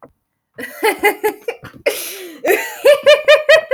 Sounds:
Laughter